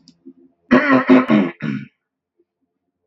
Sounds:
Throat clearing